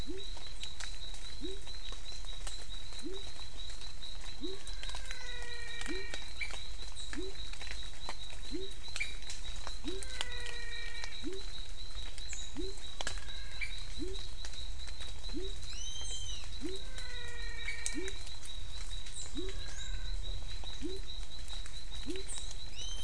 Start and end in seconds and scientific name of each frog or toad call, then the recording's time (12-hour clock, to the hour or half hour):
0.0	23.0	Adenomera diptyx
0.0	23.0	Leptodactylus labyrinthicus
4.6	6.4	Physalaemus albonotatus
9.7	11.2	Physalaemus albonotatus
12.8	14.0	Physalaemus albonotatus
16.7	18.6	Physalaemus albonotatus
19.3	20.5	Physalaemus albonotatus
~6pm